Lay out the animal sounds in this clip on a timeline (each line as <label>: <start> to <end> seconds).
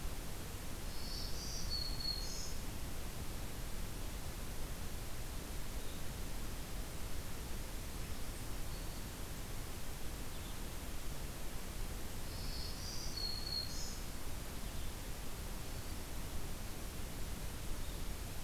Black-throated Green Warbler (Setophaga virens): 0.8 to 2.7 seconds
Black-capped Chickadee (Poecile atricapillus): 7.9 to 9.2 seconds
Black-throated Green Warbler (Setophaga virens): 12.1 to 14.1 seconds